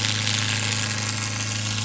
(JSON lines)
{"label": "anthrophony, boat engine", "recorder": "SoundTrap 500"}